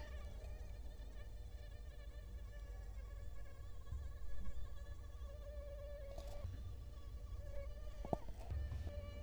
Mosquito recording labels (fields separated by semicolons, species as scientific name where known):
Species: Culex quinquefasciatus; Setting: cup